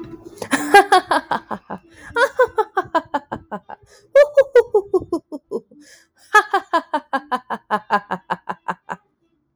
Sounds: Laughter